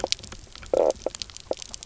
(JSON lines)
{"label": "biophony, knock croak", "recorder": "SoundTrap 300"}